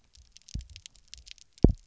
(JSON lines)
{"label": "biophony, double pulse", "recorder": "SoundTrap 300"}